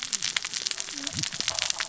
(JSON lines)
{"label": "biophony, cascading saw", "recorder": "SoundTrap 600 or HydroMoth"}